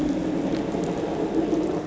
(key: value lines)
label: anthrophony, boat engine
recorder: SoundTrap 500